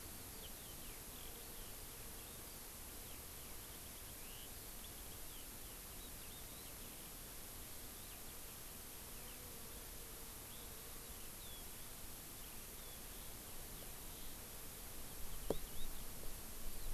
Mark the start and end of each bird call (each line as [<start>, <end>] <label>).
[0.00, 16.87] Eurasian Skylark (Alauda arvensis)